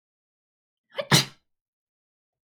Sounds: Sneeze